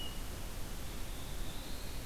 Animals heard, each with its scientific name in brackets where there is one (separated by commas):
Black-throated Blue Warbler (Setophaga caerulescens), Red-eyed Vireo (Vireo olivaceus)